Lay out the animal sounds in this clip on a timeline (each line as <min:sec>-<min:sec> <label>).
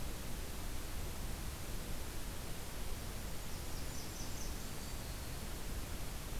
0:03.2-0:05.6 Blackburnian Warbler (Setophaga fusca)